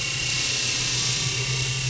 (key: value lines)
label: anthrophony, boat engine
recorder: SoundTrap 500